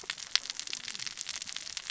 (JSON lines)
{"label": "biophony, cascading saw", "recorder": "SoundTrap 600 or HydroMoth"}